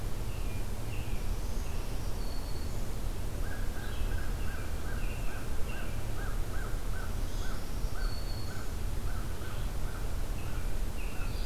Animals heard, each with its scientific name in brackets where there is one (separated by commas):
American Crow (Corvus brachyrhynchos), Black-throated Green Warbler (Setophaga virens), American Robin (Turdus migratorius), Red-eyed Vireo (Vireo olivaceus)